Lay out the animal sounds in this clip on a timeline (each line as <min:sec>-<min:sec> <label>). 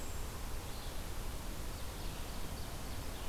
0:00.0-0:03.3 Red-eyed Vireo (Vireo olivaceus)
0:01.6-0:03.1 Ovenbird (Seiurus aurocapilla)